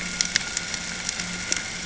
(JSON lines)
{"label": "ambient", "recorder": "HydroMoth"}